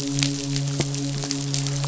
{"label": "biophony, midshipman", "recorder": "SoundTrap 500"}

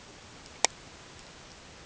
{"label": "ambient", "recorder": "HydroMoth"}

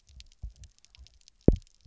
{"label": "biophony, double pulse", "recorder": "SoundTrap 300"}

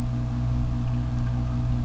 {"label": "biophony", "recorder": "SoundTrap 600"}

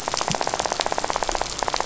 {"label": "biophony, rattle", "recorder": "SoundTrap 500"}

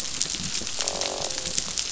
{"label": "biophony, croak", "recorder": "SoundTrap 500"}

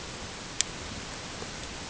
{"label": "ambient", "recorder": "HydroMoth"}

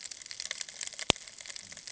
{"label": "ambient", "recorder": "HydroMoth"}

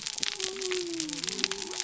{"label": "biophony", "recorder": "SoundTrap 300"}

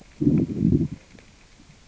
{"label": "biophony, growl", "recorder": "SoundTrap 600 or HydroMoth"}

